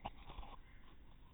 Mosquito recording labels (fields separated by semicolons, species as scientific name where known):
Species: no mosquito; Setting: cup